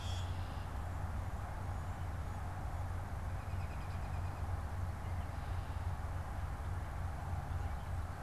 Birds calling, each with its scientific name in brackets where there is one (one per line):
American Robin (Turdus migratorius)